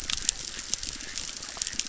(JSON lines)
{"label": "biophony, chorus", "recorder": "SoundTrap 600"}